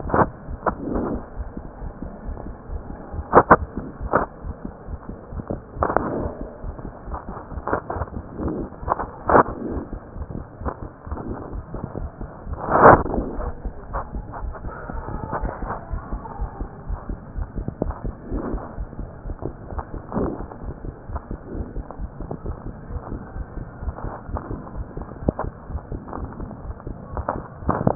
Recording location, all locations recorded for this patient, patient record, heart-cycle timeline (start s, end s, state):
pulmonary valve (PV)
aortic valve (AV)+pulmonary valve (PV)+tricuspid valve (TV)+mitral valve (MV)
#Age: Child
#Sex: Female
#Height: 97.0 cm
#Weight: 13.5 kg
#Pregnancy status: False
#Murmur: Present
#Murmur locations: mitral valve (MV)+tricuspid valve (TV)
#Most audible location: tricuspid valve (TV)
#Systolic murmur timing: Early-systolic
#Systolic murmur shape: Plateau
#Systolic murmur grading: I/VI
#Systolic murmur pitch: Low
#Systolic murmur quality: Blowing
#Diastolic murmur timing: nan
#Diastolic murmur shape: nan
#Diastolic murmur grading: nan
#Diastolic murmur pitch: nan
#Diastolic murmur quality: nan
#Outcome: Abnormal
#Campaign: 2015 screening campaign
0.00	16.20	unannotated
16.20	16.40	diastole
16.40	16.50	S1
16.50	16.58	systole
16.58	16.68	S2
16.68	16.88	diastole
16.88	17.00	S1
17.00	17.08	systole
17.08	17.18	S2
17.18	17.35	diastole
17.35	17.48	S1
17.48	17.56	systole
17.56	17.68	S2
17.68	17.84	diastole
17.84	17.96	S1
17.96	18.02	systole
18.02	18.14	S2
18.14	18.32	diastole
18.32	18.41	S1
18.41	18.51	systole
18.51	18.62	S2
18.62	18.76	diastole
18.76	18.86	S1
18.86	18.98	systole
18.98	19.06	S2
19.06	19.24	diastole
19.24	19.36	S1
19.36	19.44	systole
19.44	19.53	S2
19.53	19.74	diastole
19.74	19.84	S1
19.84	19.93	systole
19.93	20.02	S2
20.02	20.18	diastole
20.18	20.32	S1
20.32	20.38	systole
20.38	20.48	S2
20.48	20.64	diastole
20.64	20.76	S1
20.76	20.84	systole
20.84	20.94	S2
20.94	21.09	diastole
21.09	21.20	S1
21.20	21.29	systole
21.29	21.38	S2
21.38	21.56	diastole
21.56	21.66	S1
21.66	21.74	systole
21.74	21.86	S2
21.86	21.99	diastole
21.99	22.10	S1
22.10	27.95	unannotated